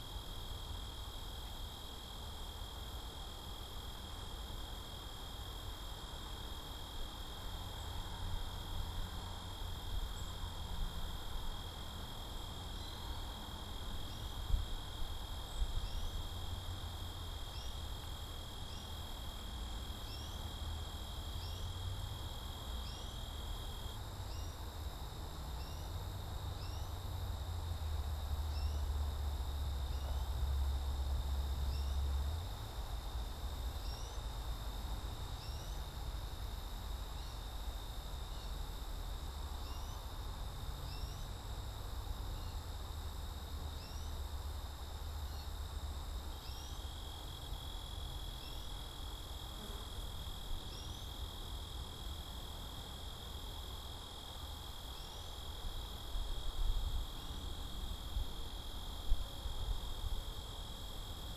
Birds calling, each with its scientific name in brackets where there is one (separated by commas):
Cedar Waxwing (Bombycilla cedrorum), American Goldfinch (Spinus tristis)